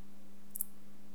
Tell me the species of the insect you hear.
Parasteropleurus martorellii